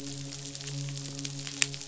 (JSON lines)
{"label": "biophony, midshipman", "recorder": "SoundTrap 500"}